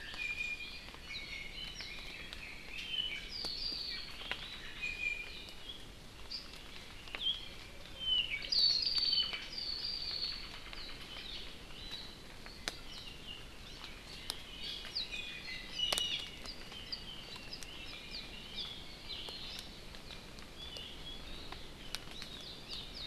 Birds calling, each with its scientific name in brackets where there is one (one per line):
Iiwi (Drepanis coccinea)
Red-billed Leiothrix (Leiothrix lutea)
Apapane (Himatione sanguinea)